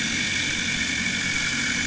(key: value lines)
label: anthrophony, boat engine
recorder: HydroMoth